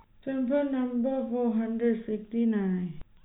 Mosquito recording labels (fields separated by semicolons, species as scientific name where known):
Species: no mosquito; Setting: cup